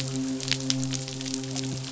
{"label": "biophony, midshipman", "recorder": "SoundTrap 500"}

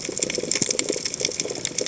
{"label": "biophony, chatter", "recorder": "HydroMoth"}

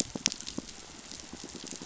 {"label": "biophony, pulse", "recorder": "SoundTrap 500"}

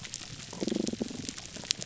{"label": "biophony, damselfish", "recorder": "SoundTrap 300"}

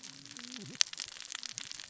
{"label": "biophony, cascading saw", "recorder": "SoundTrap 600 or HydroMoth"}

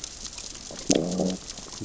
{"label": "biophony, growl", "recorder": "SoundTrap 600 or HydroMoth"}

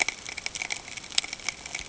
{"label": "ambient", "recorder": "HydroMoth"}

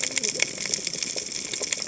{"label": "biophony, cascading saw", "recorder": "HydroMoth"}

